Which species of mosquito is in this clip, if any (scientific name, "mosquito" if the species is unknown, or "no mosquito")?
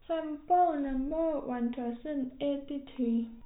no mosquito